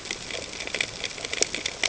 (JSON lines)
{"label": "ambient", "recorder": "HydroMoth"}